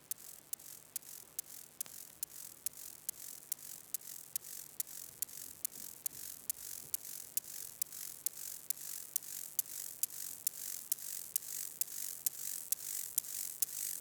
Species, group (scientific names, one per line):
Chorthippus mollis
Orthoptera